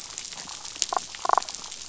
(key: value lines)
label: biophony, damselfish
recorder: SoundTrap 500